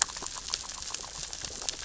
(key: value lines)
label: biophony, grazing
recorder: SoundTrap 600 or HydroMoth